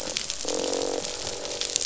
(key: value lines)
label: biophony, croak
recorder: SoundTrap 500